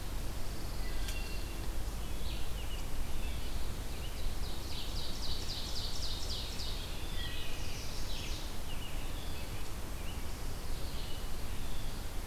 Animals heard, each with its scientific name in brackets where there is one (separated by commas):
Pine Warbler (Setophaga pinus), Chestnut-sided Warbler (Setophaga pensylvanica), Ovenbird (Seiurus aurocapilla), American Robin (Turdus migratorius), Wood Thrush (Hylocichla mustelina)